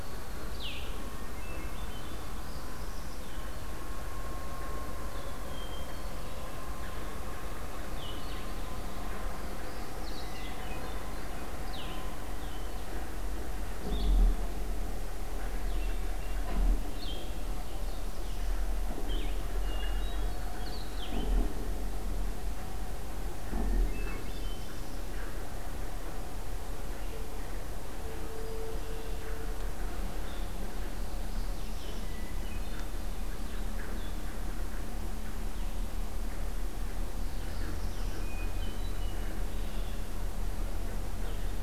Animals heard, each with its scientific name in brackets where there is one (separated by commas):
Downy Woodpecker (Dryobates pubescens), Hermit Thrush (Catharus guttatus), Blue-headed Vireo (Vireo solitarius), Northern Parula (Setophaga americana)